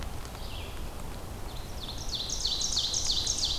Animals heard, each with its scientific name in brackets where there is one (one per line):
Ovenbird (Seiurus aurocapilla)
Red-eyed Vireo (Vireo olivaceus)